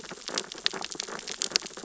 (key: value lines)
label: biophony, sea urchins (Echinidae)
recorder: SoundTrap 600 or HydroMoth